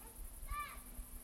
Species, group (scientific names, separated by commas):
Tettigonia viridissima, Orthoptera